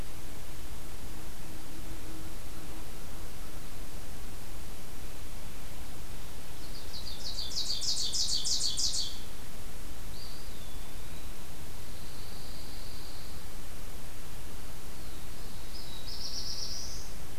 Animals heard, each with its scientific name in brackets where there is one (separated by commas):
Pine Warbler (Setophaga pinus), Black-throated Blue Warbler (Setophaga caerulescens), Ovenbird (Seiurus aurocapilla), Eastern Wood-Pewee (Contopus virens)